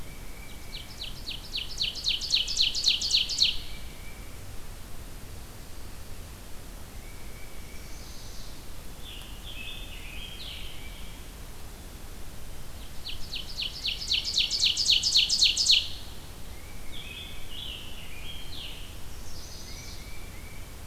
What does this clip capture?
Tufted Titmouse, Ovenbird, Chestnut-sided Warbler, American Robin, Scarlet Tanager